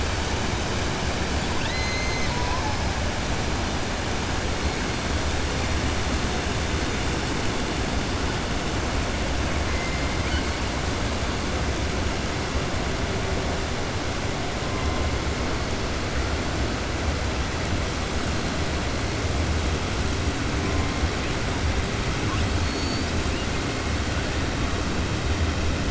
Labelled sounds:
1.5	2.7	killer whale, 0.82 to 4.8 kHz
22.6	23.1	killer whale, 4.3 to 6.9 kHz

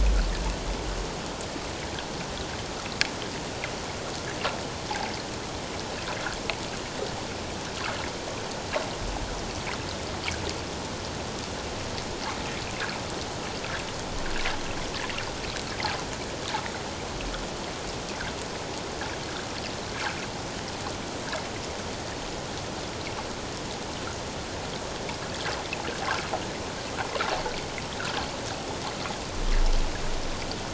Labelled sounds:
28.0	28.3	water noise, 1.2 to 1.7 kHz

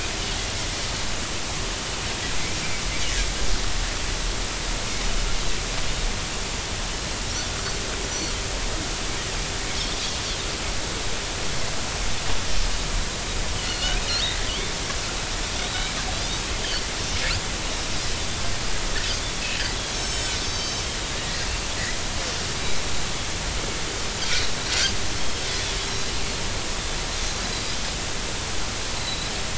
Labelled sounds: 8.1	8.4	Pacific white-sided dolphin, 5.6 to 6.0 kHz
13.6	14.0	Pacific white-sided dolphin, 2.8 to 4.5 kHz
14.5	14.7	Pacific white-sided dolphin, 2.9 to 3.6 kHz
17.6	17.9	Pacific white-sided dolphin, 3.7 to 3.9 kHz
19.9	20.9	Pacific white-sided dolphin, 4.6 to 7.8 kHz
21.2	21.4	Pacific white-sided dolphin, 1.8 to 2.0 kHz
25.8	26.1	Pacific white-sided dolphin, 3.9 to 5.7 kHz
29.0	29.3	Pacific white-sided dolphin, 3.7 to 4.2 kHz

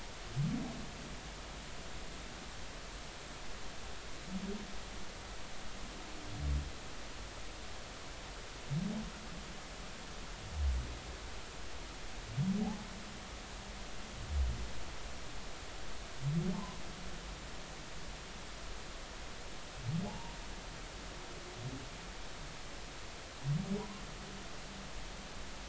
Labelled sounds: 12.6	12.9	humpback whale, 0.80 to 1.1 kHz
20.0	20.4	humpback whale, 0.80 to 0.99 kHz

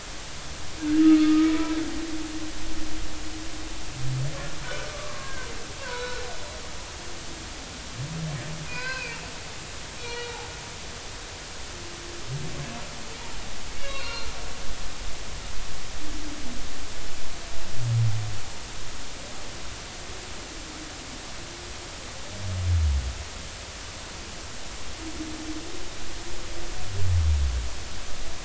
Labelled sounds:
1.0	1.5	humpback whale, 1.2 to 1.3 kHz
4.9	6.5	humpback whale, 0.93 to 1.7 kHz
8.7	9.2	humpback whale, 0.96 to 4.7 kHz
10.0	10.3	humpback whale, 2.3 to 4.4 kHz
13.7	14.3	humpback whale, 1.3 to 4.4 kHz

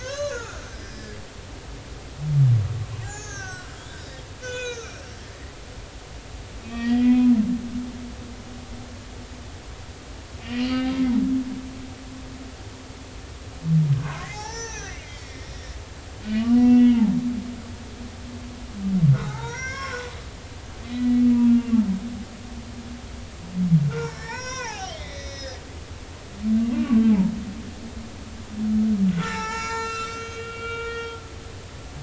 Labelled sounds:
0.0	1.2	humpback whale, 0.99 to 6.5 kHz
3.0	4.0	humpback whale, 0.80 to 6.8 kHz
4.4	5.0	humpback whale, 0.93 to 7.0 kHz
6.6	7.3	humpback whale, 1.8 to 4.9 kHz
10.4	10.9	humpback whale, 2.0 to 4.7 kHz
11.6	11.9	humpback whale, 2.7 to 3.0 kHz
14.0	17.1	humpback whale, 0.80 to 6.5 kHz
19.3	21.8	humpback whale, 0.80 to 6.4 kHz
23.9	25.6	humpback whale, 0.80 to 6.8 kHz
26.7	27.0	humpback whale, 1.1 to 2.9 kHz
29.1	31.2	humpback whale, 0.83 to 7.3 kHz

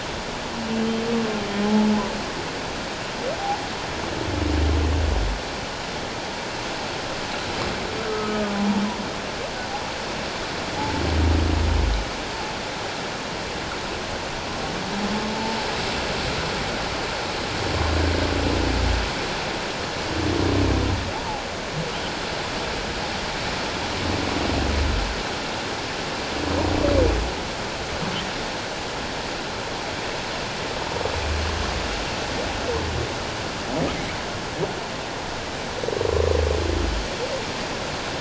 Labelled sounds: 1.6	1.9	humpback whale, 0.81 to 0.91 kHz
8.1	8.4	humpback whale, 1.2 to 1.3 kHz
15.3	15.6	humpback whale, 0.84 to 0.91 kHz
21.1	21.4	humpback whale, 0.78 to 1.0 kHz

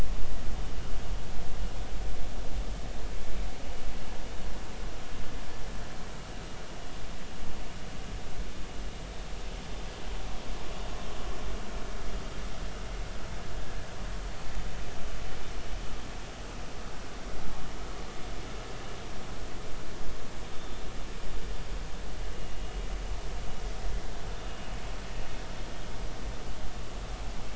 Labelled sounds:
13.6	13.9	vessel noise, 1.6 to 1.8 kHz

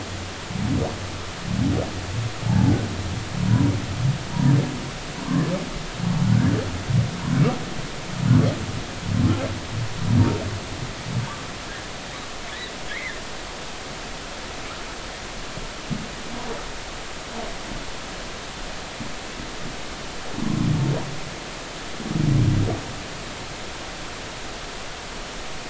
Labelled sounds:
5.2	5.5	humpback whale, 0.90 to 1.2 kHz
6.2	6.5	humpback whale, 1.4 to 1.8 kHz
13.9	14.2	humpback whale, 1.6 to 2.3 kHz

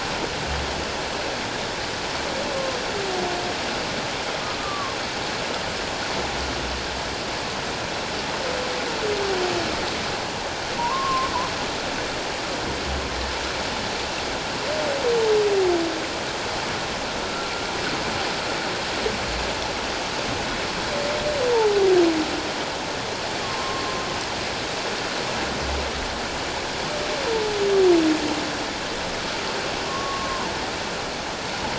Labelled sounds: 4.6	5.0	humpback whale, 1.0 to 1.2 kHz
10.8	11.3	humpback whale, 0.78 to 1.2 kHz
17.2	17.5	humpback whale, 1.3 to 1.4 kHz
23.4	24.0	humpback whale, 0.97 to 1.2 kHz
29.9	30.5	humpback whale, 0.94 to 1.2 kHz

